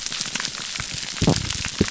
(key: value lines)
label: biophony
recorder: SoundTrap 300